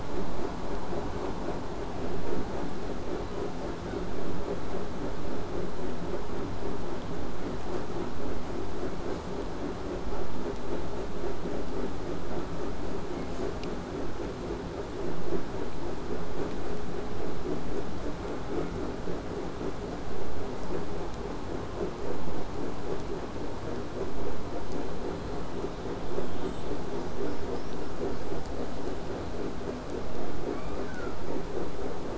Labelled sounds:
5.0	10.0	vessel noise, 0 to 8.0 kHz
22.5	28.5	killer whale, southern resident, whistle, 1.5 to 8.0 kHz
30.5	31.2	killer whale, southern resident, J pod, call S06, 0.71 to 5.4 kHz

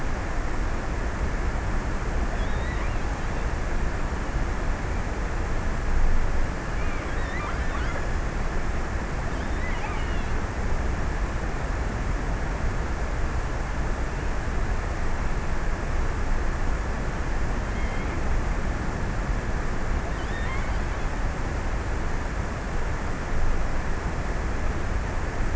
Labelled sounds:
1.8	3.8	killer whale, offshore, 1.9 to 4.1 kHz
6.0	8.5	killer whale, offshore, 1.4 to 4.2 kHz
9.2	11.5	killer whale, offshore, 0.96 to 3.7 kHz
17.2	18.5	killer whale, offshore, 1.4 to 3.8 kHz
20.2	21.2	killer whale, offshore, 1.2 to 4.2 kHz

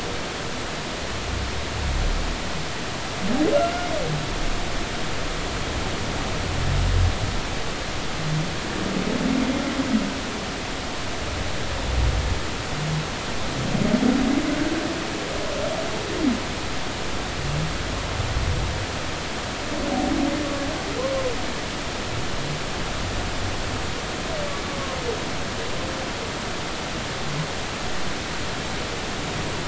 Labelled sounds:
3.5	3.9	humpback whale, 1.3 to 1.5 kHz

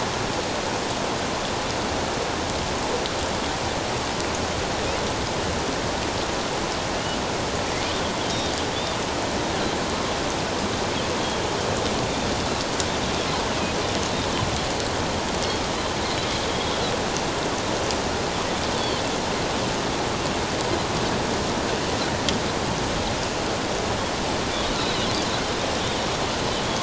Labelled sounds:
18.8	19.0	Pacific white-sided dolphin, 3.0 to 3.6 kHz
24.7	25.1	Pacific white-sided dolphin, 3.7 to 4.2 kHz

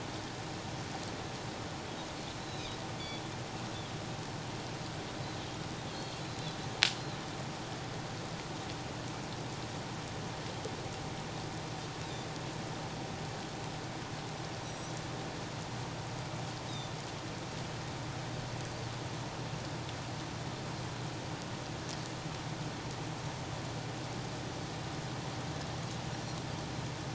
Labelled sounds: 2.4	2.8	Pacific white-sided dolphin, 3.8 to 4.0 kHz
5.9	6.6	Pacific white-sided dolphin, 3.9 to 4.4 kHz
12.0	12.3	Pacific white-sided dolphin, 3.5 to 4.0 kHz
14.6	14.9	Pacific white-sided dolphin, 5.7 to 8.0 kHz
16.7	16.9	Pacific white-sided dolphin, 3.5 to 3.9 kHz

